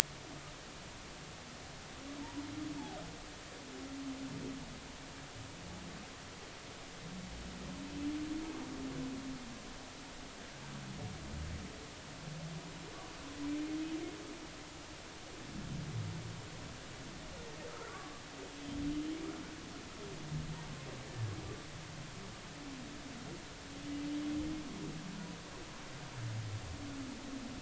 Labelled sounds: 17.7	18.2	humpback whale, 1.0 to 1.6 kHz
18.9	19.2	humpback whale, 2.9 to 3.1 kHz

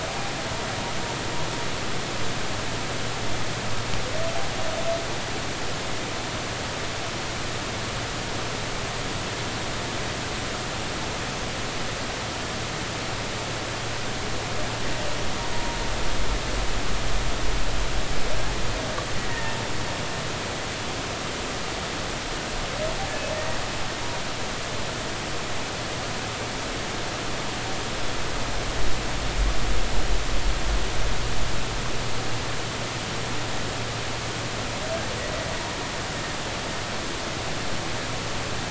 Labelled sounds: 15.5	15.8	humpback whale, 0.90 to 0.99 kHz
19.2	19.6	humpback whale, 1.8 to 2.0 kHz
23.3	23.6	humpback whale, 1.8 to 2.0 kHz

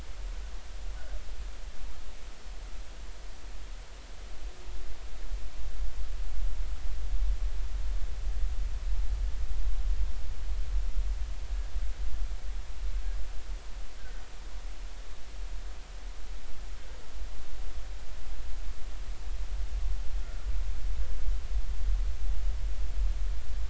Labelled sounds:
20.2	20.5	humpback whale, 1.2 to 1.5 kHz

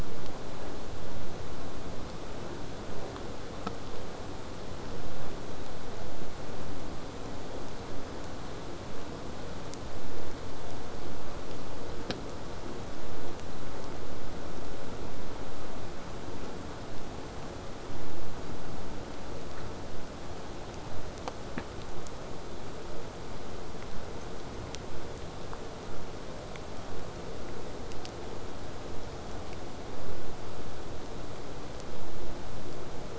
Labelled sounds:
19.9	20.9	vessel noise, 0.05 to 8.0 kHz

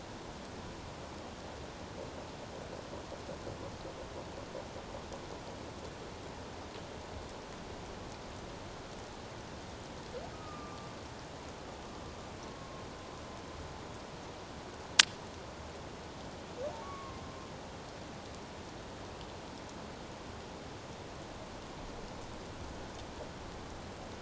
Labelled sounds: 10.3	10.9	humpback whale, 1.1 to 1.3 kHz
12.5	12.8	humpback whale, 1.0 to 1.1 kHz
16.8	17.2	humpback whale, 1.0 to 2.3 kHz

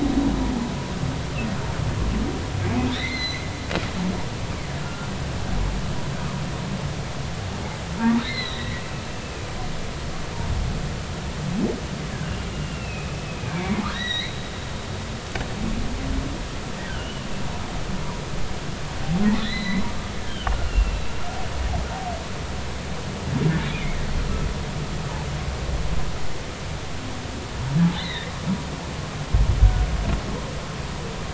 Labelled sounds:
2.9	3.5	humpback whale, 1.7 to 6.3 kHz
4.8	5.1	humpback whale, 1.3 to 1.4 kHz
8.2	9.5	humpback whale, 1.8 to 4.3 kHz
12.5	14.4	humpback whale, 1.5 to 4.3 kHz
16.9	17.2	humpback whale, 2.8 to 3.1 kHz
19.4	21.0	humpback whale, 1.4 to 4.2 kHz
23.7	24.0	humpback whale, 2.0 to 2.6 kHz
27.9	28.3	humpback whale, 1.7 to 4.2 kHz

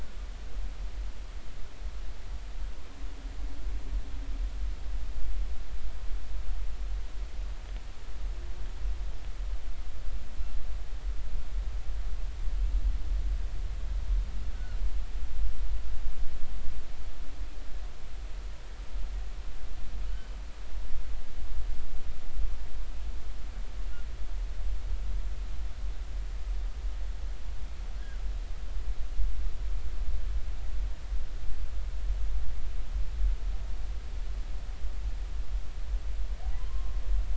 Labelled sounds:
14.5	14.8	humpback whale, 1.3 to 1.6 kHz
20.1	20.3	humpback whale, 2.9 to 3.1 kHz
36.5	36.9	humpback whale, 0.93 to 1.1 kHz

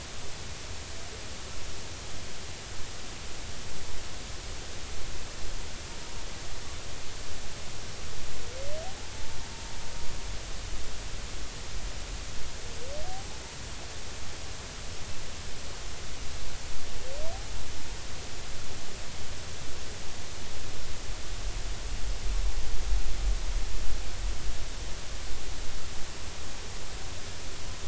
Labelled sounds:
9.1	9.4	humpback whale, 0.86 to 0.93 kHz

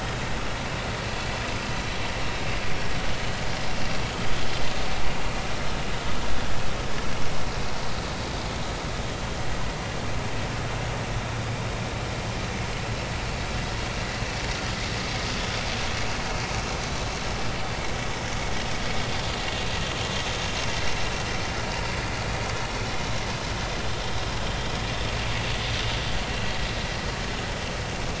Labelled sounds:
0.0	0.2	vessel noise, 4.9 to 5.1 kHz

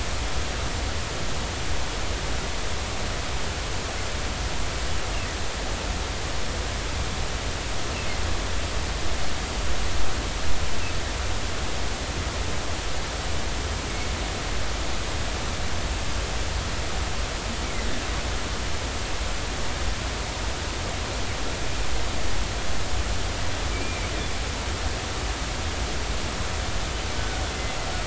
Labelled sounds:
23.7	24.1	humpback whale, 2.2 to 2.5 kHz
27.1	27.4	humpback whale, 1.4 to 1.6 kHz

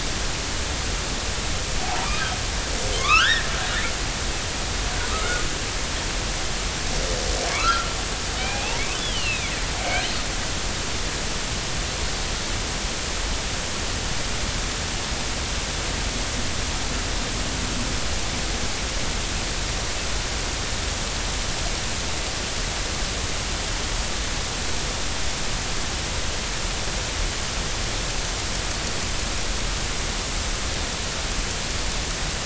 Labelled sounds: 1.8	3.5	killer whale, northern resident, G clan, 0.80 to 3.8 kHz
5.1	5.4	killer whale, northern resident, G clan, 1.2 to 1.5 kHz
7.5	9.5	killer whale, northern resident, G clan, 0.80 to 4.5 kHz

